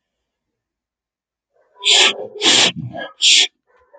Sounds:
Sniff